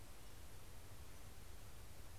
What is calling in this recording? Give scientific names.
Empidonax difficilis